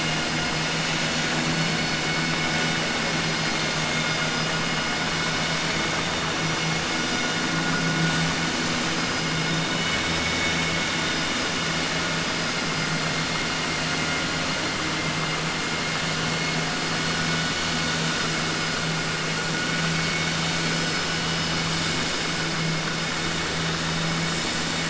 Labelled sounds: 9.7	10.8	vessel noise, 1.5 to 3.8 kHz

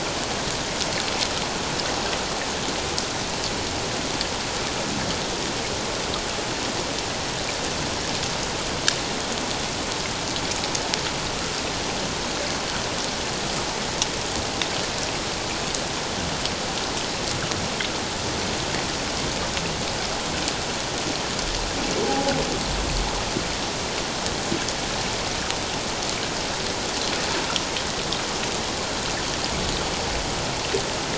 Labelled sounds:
22.0	22.3	humpback whale, 0.78 to 0.91 kHz

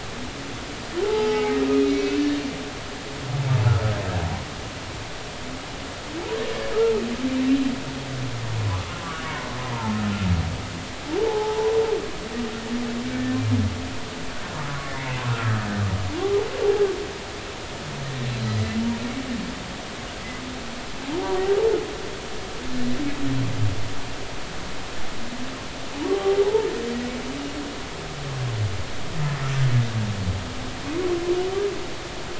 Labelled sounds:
1.0	2.1	humpback whale, 0.80 to 2.3 kHz
9.2	9.5	humpback whale, 0.90 to 1.2 kHz
11.2	11.7	humpback whale, 0.80 to 1.0 kHz
14.8	15.7	humpback whale, 0.96 to 2.2 kHz
16.6	16.9	humpback whale, 0.80 to 0.86 kHz
26.1	26.7	humpback whale, 0.80 to 0.99 kHz

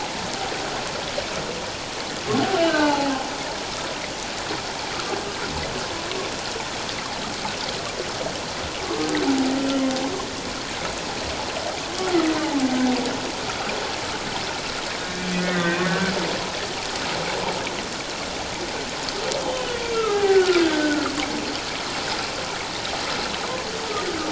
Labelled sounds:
2.7	3.1	humpback whale, 0.78 to 1.7 kHz
15.4	16.1	humpback whale, 1.0 to 2.0 kHz
19.5	21.2	humpback whale, 0.78 to 3.2 kHz

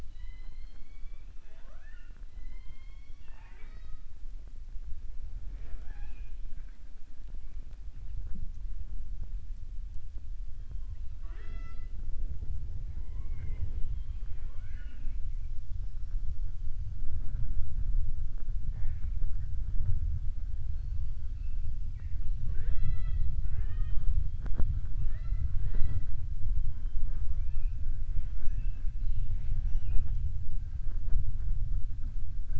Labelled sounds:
0.0	4.0	killer whale, southern resident, 0.40 to 5.7 kHz
23.3	24.1	killer whale, southern resident, 0.40 to 4.4 kHz
28.0	28.9	killer whale, southern resident, 0.70 to 3.3 kHz

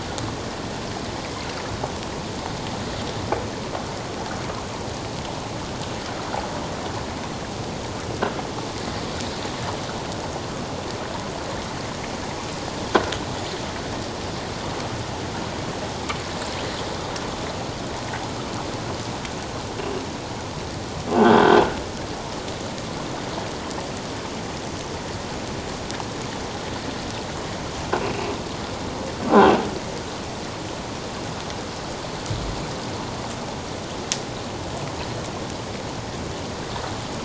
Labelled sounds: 21.2	21.6	croaking sound likely from a nearby submerged object, 1.4 to 3.5 kHz

